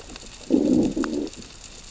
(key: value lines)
label: biophony, growl
recorder: SoundTrap 600 or HydroMoth